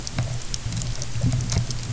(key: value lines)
label: anthrophony, boat engine
recorder: SoundTrap 300